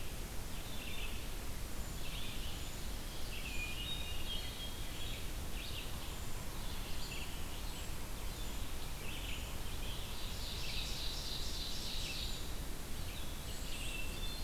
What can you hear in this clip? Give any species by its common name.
Red-eyed Vireo, Ovenbird, Hermit Thrush